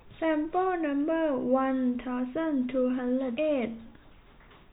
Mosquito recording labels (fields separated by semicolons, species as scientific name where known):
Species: no mosquito; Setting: cup